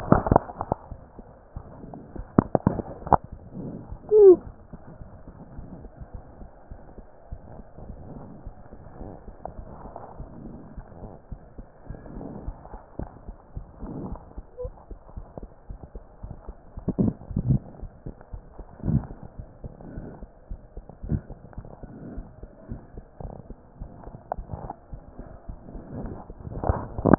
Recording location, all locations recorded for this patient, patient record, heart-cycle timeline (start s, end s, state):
aortic valve (AV)
aortic valve (AV)+pulmonary valve (PV)+tricuspid valve (TV)+mitral valve (MV)
#Age: Child
#Sex: Female
#Height: 116.0 cm
#Weight: 19.0 kg
#Pregnancy status: False
#Murmur: Present
#Murmur locations: aortic valve (AV)+mitral valve (MV)+pulmonary valve (PV)+tricuspid valve (TV)
#Most audible location: pulmonary valve (PV)
#Systolic murmur timing: Early-systolic
#Systolic murmur shape: Plateau
#Systolic murmur grading: II/VI
#Systolic murmur pitch: Low
#Systolic murmur quality: Harsh
#Diastolic murmur timing: nan
#Diastolic murmur shape: nan
#Diastolic murmur grading: nan
#Diastolic murmur pitch: nan
#Diastolic murmur quality: nan
#Outcome: Abnormal
#Campaign: 2015 screening campaign
0.00	6.12	unannotated
6.12	6.22	S1
6.22	6.38	systole
6.38	6.50	S2
6.50	6.68	diastole
6.68	6.78	S1
6.78	6.96	systole
6.96	7.06	S2
7.06	7.28	diastole
7.28	7.40	S1
7.40	7.56	systole
7.56	7.66	S2
7.66	7.86	diastole
7.86	7.98	S1
7.98	8.12	systole
8.12	8.24	S2
8.24	8.44	diastole
8.44	8.54	S1
8.54	8.70	systole
8.70	8.80	S2
8.80	8.98	diastole
8.98	9.10	S1
9.10	9.26	systole
9.26	9.36	S2
9.36	9.56	diastole
9.56	9.70	S1
9.70	9.86	systole
9.86	9.96	S2
9.96	10.18	diastole
10.18	10.30	S1
10.30	10.44	systole
10.44	10.58	S2
10.58	10.76	diastole
10.76	10.86	S1
10.86	11.02	systole
11.02	11.12	S2
11.12	11.30	diastole
11.30	11.40	S1
11.40	11.56	systole
11.56	11.68	S2
11.68	11.88	diastole
11.88	12.02	S1
12.02	12.14	systole
12.14	12.26	S2
12.26	12.42	diastole
12.42	12.60	S1
12.60	12.72	systole
12.72	12.82	S2
12.82	13.00	diastole
13.00	13.14	S1
13.14	13.26	systole
13.26	13.36	S2
13.36	13.54	diastole
13.54	13.68	S1
13.68	13.80	systole
13.80	13.92	S2
13.92	14.06	diastole
14.06	14.20	S1
14.20	14.36	systole
14.36	14.46	S2
14.46	14.62	diastole
14.62	14.74	S1
14.74	14.90	systole
14.90	14.98	S2
14.98	15.12	diastole
15.12	15.24	S1
15.24	15.38	systole
15.38	15.52	S2
15.52	15.68	diastole
15.68	15.80	S1
15.80	15.94	systole
15.94	16.06	S2
16.06	16.22	diastole
16.22	16.36	S1
16.36	16.48	systole
16.48	16.58	S2
16.58	16.74	diastole
16.74	16.84	S1
16.84	27.18	unannotated